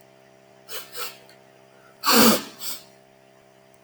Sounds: Sniff